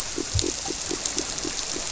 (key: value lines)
label: biophony
recorder: SoundTrap 300